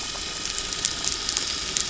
{"label": "anthrophony, boat engine", "recorder": "SoundTrap 300"}
{"label": "biophony", "recorder": "SoundTrap 300"}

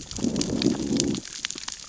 {"label": "biophony, growl", "recorder": "SoundTrap 600 or HydroMoth"}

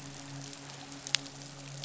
{"label": "biophony, midshipman", "recorder": "SoundTrap 500"}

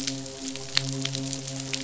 {"label": "biophony, midshipman", "recorder": "SoundTrap 500"}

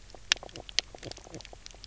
{"label": "biophony, knock croak", "recorder": "SoundTrap 300"}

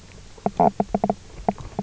{"label": "biophony, knock croak", "recorder": "SoundTrap 300"}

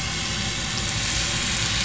{"label": "anthrophony, boat engine", "recorder": "SoundTrap 500"}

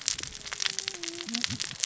{"label": "biophony, cascading saw", "recorder": "SoundTrap 600 or HydroMoth"}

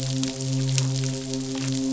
{"label": "biophony, midshipman", "recorder": "SoundTrap 500"}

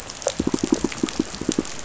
{"label": "biophony, pulse", "recorder": "SoundTrap 500"}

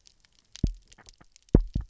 {"label": "biophony, double pulse", "recorder": "SoundTrap 300"}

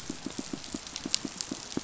{"label": "biophony, pulse", "recorder": "SoundTrap 500"}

